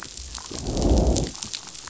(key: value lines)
label: biophony, growl
recorder: SoundTrap 500